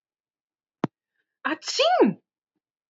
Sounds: Sneeze